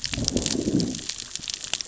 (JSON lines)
{"label": "biophony, growl", "recorder": "SoundTrap 600 or HydroMoth"}